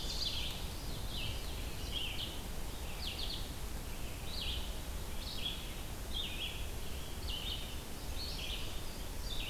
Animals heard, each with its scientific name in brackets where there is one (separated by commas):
Red-eyed Vireo (Vireo olivaceus), Indigo Bunting (Passerina cyanea)